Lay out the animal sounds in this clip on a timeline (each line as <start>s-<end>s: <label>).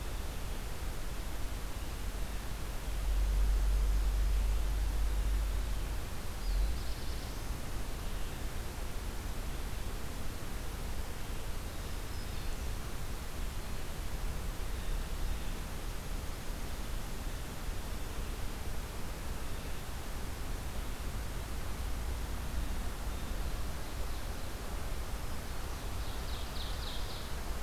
6.1s-7.7s: Black-throated Blue Warbler (Setophaga caerulescens)
11.7s-12.7s: Black-throated Green Warbler (Setophaga virens)
14.6s-15.7s: Blue Jay (Cyanocitta cristata)
25.1s-27.3s: Ovenbird (Seiurus aurocapilla)